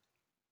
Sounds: Throat clearing